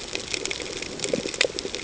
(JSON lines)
{"label": "ambient", "recorder": "HydroMoth"}